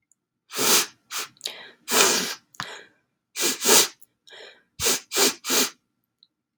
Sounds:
Sniff